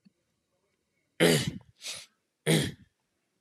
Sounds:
Throat clearing